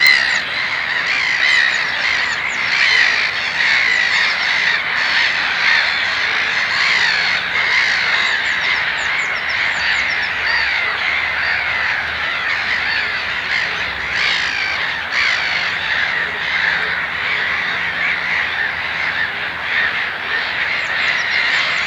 Is there a cat?
no